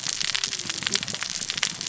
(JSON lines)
{"label": "biophony, cascading saw", "recorder": "SoundTrap 600 or HydroMoth"}